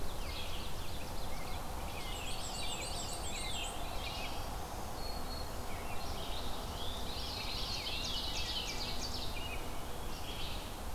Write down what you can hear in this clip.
Red-eyed Vireo, Ovenbird, Rose-breasted Grosbeak, Black-and-white Warbler, Veery, Black-throated Green Warbler